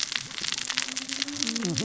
{"label": "biophony, cascading saw", "recorder": "SoundTrap 600 or HydroMoth"}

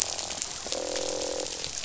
{"label": "biophony, croak", "recorder": "SoundTrap 500"}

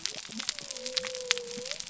{"label": "biophony", "recorder": "SoundTrap 300"}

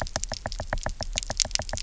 {"label": "biophony, knock", "recorder": "SoundTrap 300"}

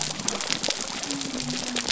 {"label": "biophony", "recorder": "SoundTrap 300"}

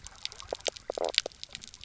{"label": "biophony, knock croak", "recorder": "SoundTrap 300"}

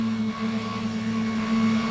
{"label": "anthrophony, boat engine", "recorder": "SoundTrap 500"}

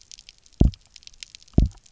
{"label": "biophony, double pulse", "recorder": "SoundTrap 300"}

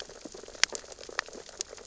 {"label": "biophony, sea urchins (Echinidae)", "recorder": "SoundTrap 600 or HydroMoth"}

